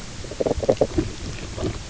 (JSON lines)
{"label": "biophony, knock croak", "recorder": "SoundTrap 300"}